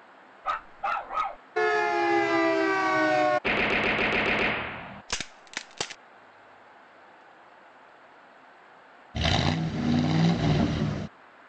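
A quiet, steady background noise lies under the clip. First at 0.4 seconds, a dog barks. Then, at 1.6 seconds, a siren is heard. After that, at 3.4 seconds, there is gunfire. Next, at 5.1 seconds, cracking is audible. Finally, at 9.1 seconds, an engine accelerates.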